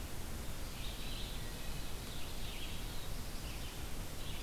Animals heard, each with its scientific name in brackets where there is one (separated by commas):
Red-eyed Vireo (Vireo olivaceus), Wood Thrush (Hylocichla mustelina)